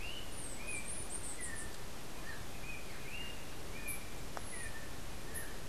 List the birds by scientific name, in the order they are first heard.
Icterus chrysater, Arremon brunneinucha